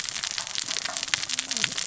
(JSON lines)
{"label": "biophony, cascading saw", "recorder": "SoundTrap 600 or HydroMoth"}